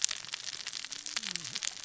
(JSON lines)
{"label": "biophony, cascading saw", "recorder": "SoundTrap 600 or HydroMoth"}